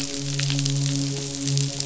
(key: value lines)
label: biophony, midshipman
recorder: SoundTrap 500